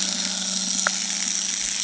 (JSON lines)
{"label": "anthrophony, boat engine", "recorder": "HydroMoth"}